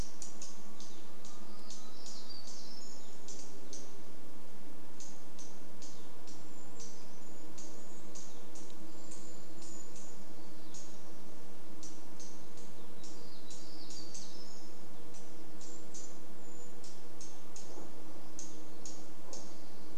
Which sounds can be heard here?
Evening Grosbeak call, warbler song, unidentified bird chip note, vehicle engine, Brown Creeper call